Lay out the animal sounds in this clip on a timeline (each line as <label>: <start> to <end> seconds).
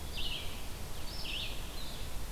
Red-eyed Vireo (Vireo olivaceus): 0.0 to 2.3 seconds